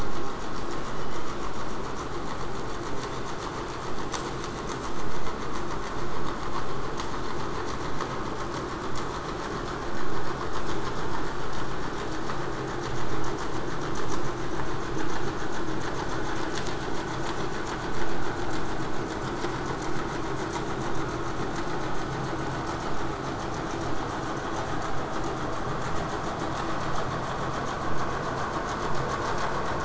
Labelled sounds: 0.7	1.3	killer whale, southern resident, 1.6 to 4.2 kHz
24.8	29.8	vessel noise, 0 to 8.0 kHz

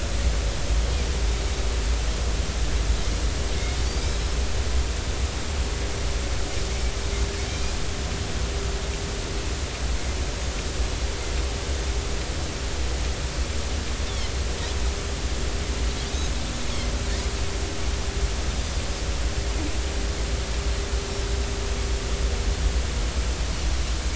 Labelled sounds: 7.5	7.7	Pacific white-sided dolphin, 2.3 to 2.5 kHz
16.0	16.3	Pacific white-sided dolphin, 3.5 to 4.0 kHz

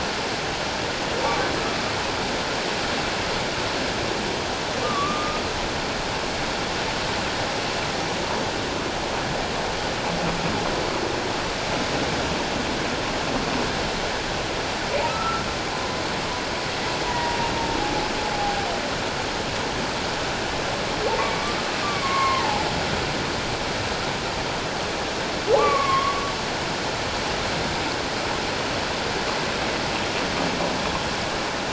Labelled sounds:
4.8	5.4	humpback whale, 1.1 to 1.3 kHz
15.1	15.4	humpback whale, 1.2 to 1.4 kHz
17.1	17.4	humpback whale, 0.91 to 1.0 kHz
21.2	22.7	humpback whale, 0.78 to 2.4 kHz
25.6	26.2	humpback whale, 1.0 to 2.4 kHz

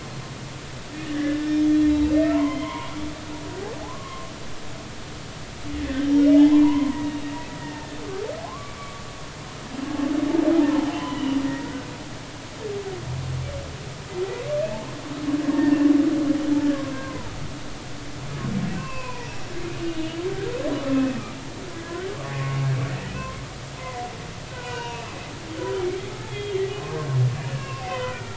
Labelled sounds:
0.9	1.9	humpback whale, 1.6 to 3.4 kHz
2.3	2.9	humpback whale, 0.86 to 3.3 kHz
3.8	4.3	humpback whale, 0.80 to 1.2 kHz
5.7	8.0	humpback whale, 0.80 to 3.7 kHz
8.4	9.0	humpback whale, 0.99 to 1.2 kHz
10.9	11.9	humpback whale, 0.96 to 3.1 kHz
15.5	15.9	humpback whale, 1.7 to 1.9 kHz
16.7	17.3	humpback whale, 0.86 to 1.7 kHz
18.8	20.2	humpback whale, 0.86 to 3.0 kHz
21.7	22.7	humpback whale, 1.1 to 2.3 kHz
23.8	25.2	humpback whale, 0.90 to 4.0 kHz
26.3	26.6	humpback whale, 3.1 to 3.4 kHz
27.5	28.3	humpback whale, 0.96 to 3.2 kHz

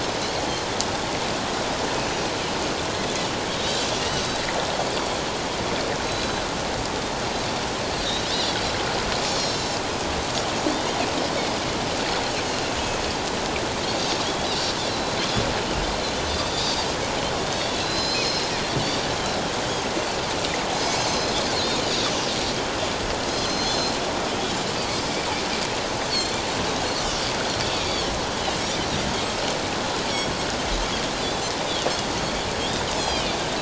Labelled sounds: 2.0	2.3	Pacific white-sided dolphin, 5.7 to 6.0 kHz
3.5	4.4	Pacific white-sided dolphin, 2.8 to 6.3 kHz
4.9	5.2	Pacific white-sided dolphin, 4.2 to 4.8 kHz
6.0	6.4	Pacific white-sided dolphin, 3.9 to 4.1 kHz
8.0	8.2	Pacific white-sided dolphin, 3.7 to 4.2 kHz
9.3	9.8	Pacific white-sided dolphin, 4.0 to 7.3 kHz
12.8	13.0	Pacific white-sided dolphin, 6.2 to 6.5 kHz
14.0	14.2	Pacific white-sided dolphin, 6.3 to 6.5 kHz
14.9	15.2	Pacific white-sided dolphin, 3.9 to 4.2 kHz
17.5	18.5	Pacific white-sided dolphin, 4.0 to 5.2 kHz
20.7	21.8	Pacific white-sided dolphin, 3.8 to 6.3 kHz
23.3	24.0	Pacific white-sided dolphin, 4.1 to 6.3 kHz
26.1	26.4	Pacific white-sided dolphin, 4.1 to 4.6 kHz
27.7	28.2	Pacific white-sided dolphin, 2.2 to 4.7 kHz
31.1	31.4	Pacific white-sided dolphin, 4.0 to 4.2 kHz
33.0	33.3	Pacific white-sided dolphin, 2.8 to 4.3 kHz

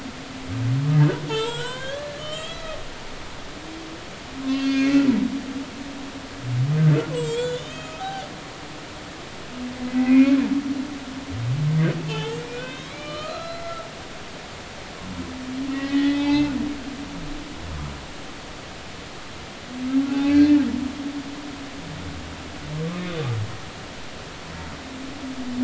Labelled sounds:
0.0	2.7	humpback whale, 0.83 to 8.0 kHz
4.5	5.0	humpback whale, 1.5 to 6.5 kHz
7.1	8.3	humpback whale, 0.80 to 7.8 kHz
9.0	10.4	humpback whale, 1.5 to 2.6 kHz
12.0	13.9	humpback whale, 0.83 to 4.4 kHz
15.7	16.5	humpback whale, 0.80 to 4.2 kHz
20.1	20.4	humpback whale, 0.80 to 0.86 kHz

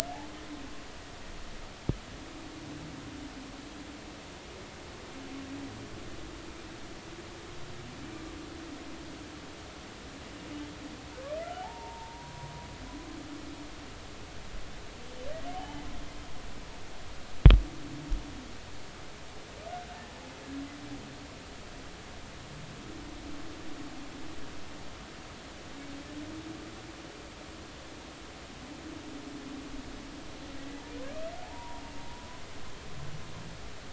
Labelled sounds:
11.6	12.5	humpback whale, 0.80 to 1.1 kHz
15.5	15.8	humpback whale, 0.80 to 3.2 kHz
31.4	31.8	humpback whale, 0.80 to 1.1 kHz

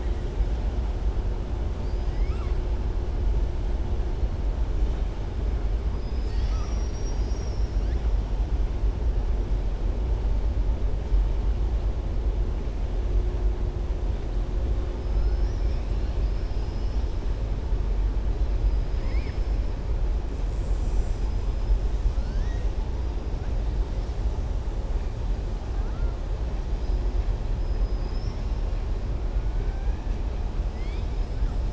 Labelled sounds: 1.7	2.6	killer whale, southern resident, 1.1 to 5.4 kHz
18.9	19.4	killer whale, southern resident, 1.0 to 5.2 kHz
22.1	22.7	killer whale, southern resident, 1.4 to 6.7 kHz
25.7	26.1	killer whale, southern resident, 0.80 to 2.1 kHz
27.6	28.6	killer whale, southern resident, 4.7 to 5.8 kHz
29.5	30.1	killer whale, southern resident, 0.77 to 2.7 kHz

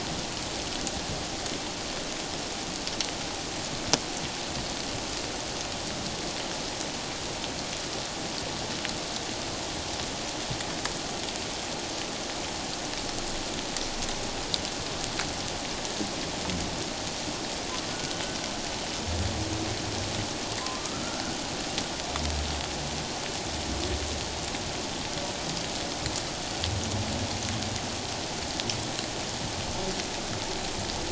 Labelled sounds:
17.9	18.2	humpback whale, 1.4 to 1.5 kHz
20.8	21.4	humpback whale, 1.2 to 1.6 kHz

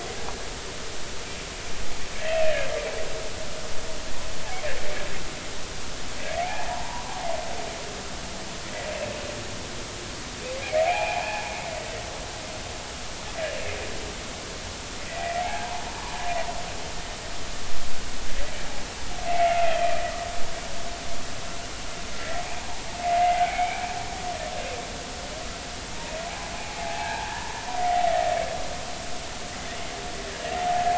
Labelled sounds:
2.2	2.7	humpback whale, 1.5 to 2.8 kHz
6.4	7.1	humpback whale, 0.80 to 1.1 kHz
10.6	11.5	humpback whale, 0.80 to 2.7 kHz
15.1	15.7	humpback whale, 0.80 to 2.0 kHz
19.3	19.8	humpback whale, 1.9 to 2.3 kHz
22.2	22.4	humpback whale, 1.8 to 2.0 kHz
23.2	23.9	humpback whale, 2.0 to 2.4 kHz
26.6	28.0	humpback whale, 0.80 to 2.2 kHz
30.6	30.9	humpback whale, 0.80 to 0.90 kHz

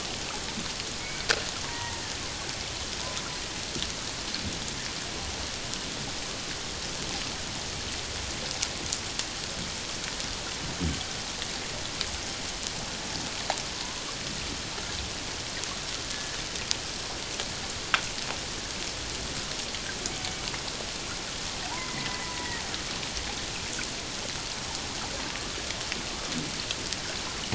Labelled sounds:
1.0	2.0	killer whale, Bigg's (transient), 0.88 to 2.3 kHz
16.1	16.4	killer whale, Bigg's (transient), 1.7 to 1.8 kHz
21.6	22.6	killer whale, Bigg's (transient), 0.78 to 2.2 kHz

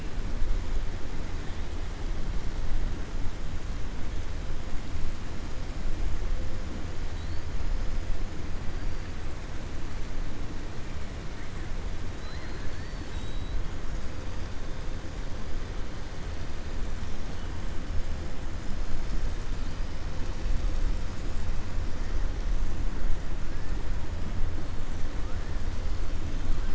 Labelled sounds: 12.1	13.6	killer whale, 3.1 to 4.8 kHz

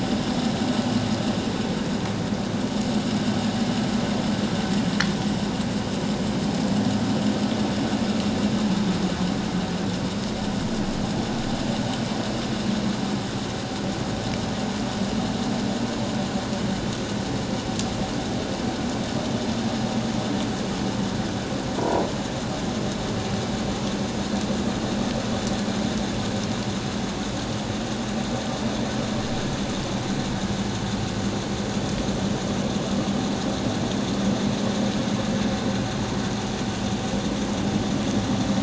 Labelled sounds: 21.8	22.1	croaking sound likely from a nearby submerged object, 0.91 to 1.0 kHz

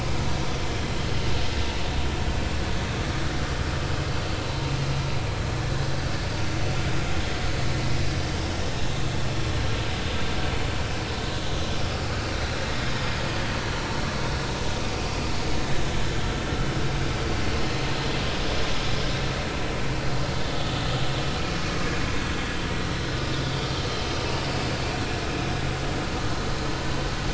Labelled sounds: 13.8	14.1	vessel noise, 5.4 to 5.5 kHz
15.6	15.8	vessel noise, 3.7 to 3.8 kHz
17.6	17.8	vessel noise, 4.1 to 4.3 kHz
22.3	22.5	vessel noise, 3.3 to 3.4 kHz

